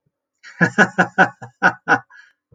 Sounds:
Laughter